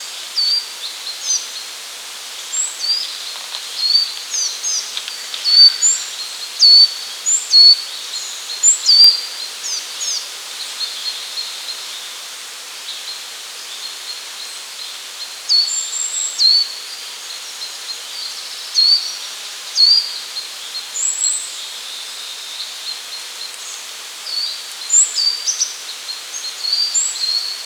Is the more than one bird chirping?
yes